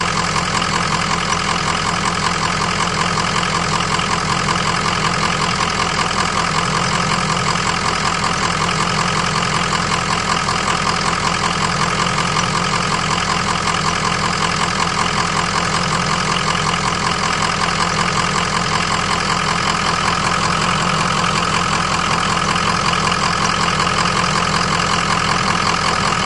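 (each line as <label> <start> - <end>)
The engine of a vehicle is heard nearby, making a rhythmic noise. 0.0 - 26.3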